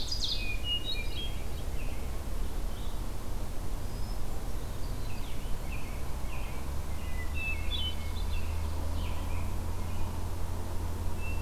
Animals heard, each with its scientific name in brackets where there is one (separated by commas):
American Robin (Turdus migratorius), Ovenbird (Seiurus aurocapilla), Blue-headed Vireo (Vireo solitarius), Hermit Thrush (Catharus guttatus)